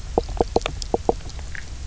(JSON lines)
{"label": "biophony, knock croak", "recorder": "SoundTrap 300"}